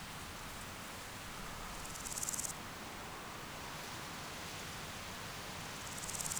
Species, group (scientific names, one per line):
Chrysochraon dispar
Orthoptera